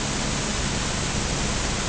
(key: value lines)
label: anthrophony, boat engine
recorder: HydroMoth